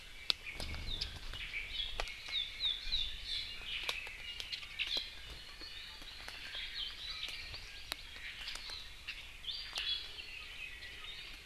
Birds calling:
Iiwi (Drepanis coccinea), Omao (Myadestes obscurus), Hawaii Amakihi (Chlorodrepanis virens)

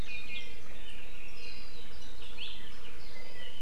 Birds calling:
Apapane (Himatione sanguinea)

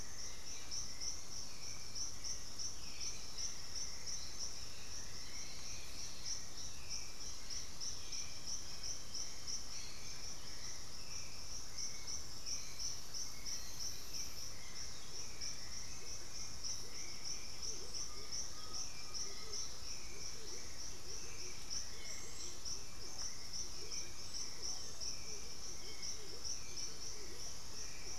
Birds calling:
Russet-backed Oropendola (Psarocolius angustifrons), Horned Screamer (Anhima cornuta), Chestnut-winged Foliage-gleaner (Dendroma erythroptera), Hauxwell's Thrush (Turdus hauxwelli), Undulated Tinamou (Crypturellus undulatus)

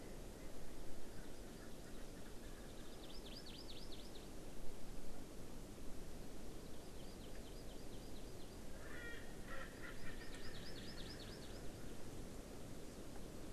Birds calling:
Erckel's Francolin (Pternistis erckelii), Hawaii Amakihi (Chlorodrepanis virens)

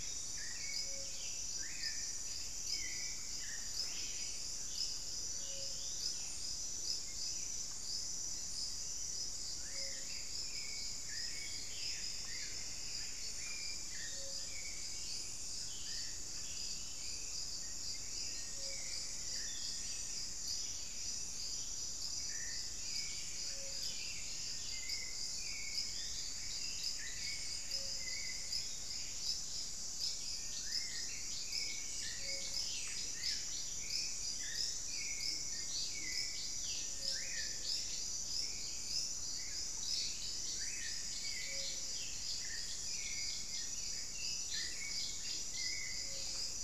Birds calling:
Black-faced Antthrush (Formicarius analis), Black-billed Thrush (Turdus ignobilis), Plumbeous Antbird (Myrmelastes hyperythrus), Ruddy Quail-Dove (Geotrygon montana), Screaming Piha (Lipaugus vociferans), White-rumped Sirystes (Sirystes albocinereus)

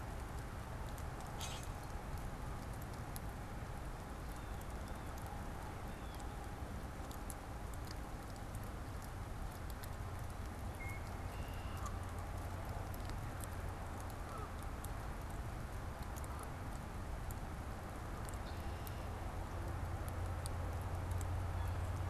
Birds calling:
Common Grackle (Quiscalus quiscula), Blue Jay (Cyanocitta cristata), Canada Goose (Branta canadensis), Red-winged Blackbird (Agelaius phoeniceus)

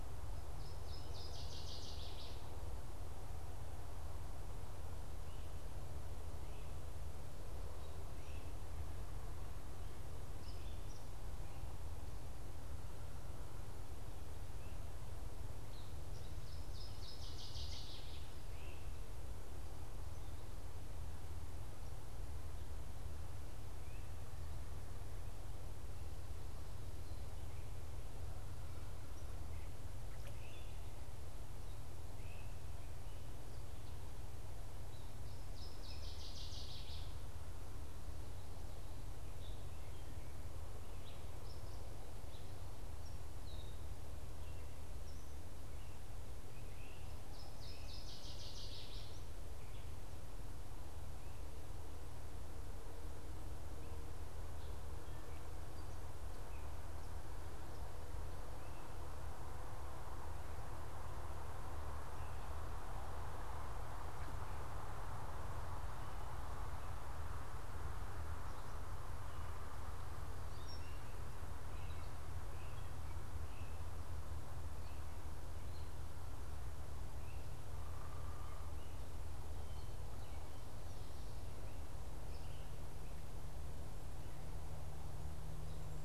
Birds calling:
Northern Waterthrush (Parkesia noveboracensis), unidentified bird, Great Crested Flycatcher (Myiarchus crinitus), Gray Catbird (Dumetella carolinensis), American Goldfinch (Spinus tristis), Eastern Phoebe (Sayornis phoebe)

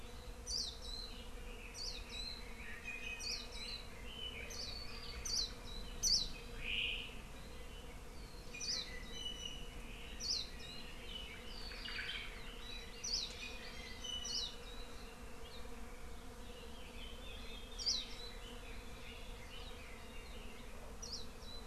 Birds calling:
Warbling White-eye (Zosterops japonicus), Omao (Myadestes obscurus), Red-billed Leiothrix (Leiothrix lutea), Iiwi (Drepanis coccinea)

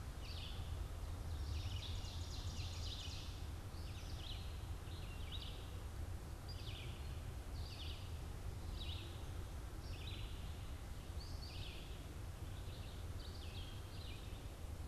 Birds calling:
Red-eyed Vireo (Vireo olivaceus), Ovenbird (Seiurus aurocapilla)

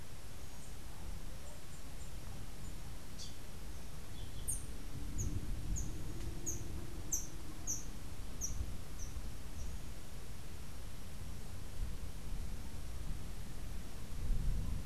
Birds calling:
Rufous-tailed Hummingbird (Amazilia tzacatl), Yellow-throated Euphonia (Euphonia hirundinacea)

